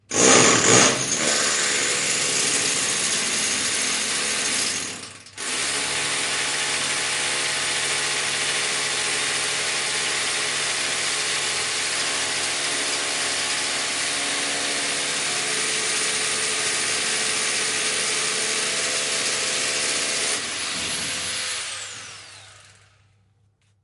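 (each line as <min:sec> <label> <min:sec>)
0:00.0 An engine produces multiple deep rumbles. 0:01.1
0:01.1 An engine thrums steadily before turning off. 0:23.8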